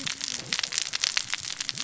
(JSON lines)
{"label": "biophony, cascading saw", "recorder": "SoundTrap 600 or HydroMoth"}